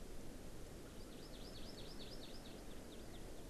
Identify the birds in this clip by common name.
Hawaii Amakihi